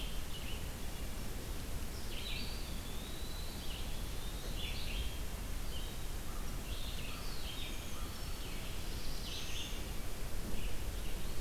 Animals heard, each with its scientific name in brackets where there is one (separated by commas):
Brown Creeper (Certhia americana), Wood Thrush (Hylocichla mustelina), Black-throated Blue Warbler (Setophaga caerulescens), Eastern Wood-Pewee (Contopus virens), American Crow (Corvus brachyrhynchos), Red-eyed Vireo (Vireo olivaceus)